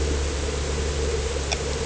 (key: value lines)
label: anthrophony, boat engine
recorder: HydroMoth